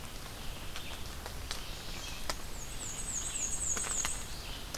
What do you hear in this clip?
Red-eyed Vireo, Chestnut-sided Warbler, Black-and-white Warbler